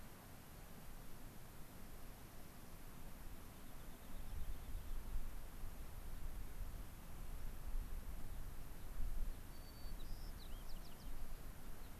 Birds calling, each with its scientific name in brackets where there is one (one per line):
Rock Wren (Salpinctes obsoletus)
White-crowned Sparrow (Zonotrichia leucophrys)
Gray-crowned Rosy-Finch (Leucosticte tephrocotis)